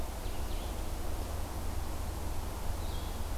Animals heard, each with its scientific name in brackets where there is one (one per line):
Red-eyed Vireo (Vireo olivaceus)